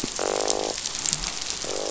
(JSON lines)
{"label": "biophony, croak", "recorder": "SoundTrap 500"}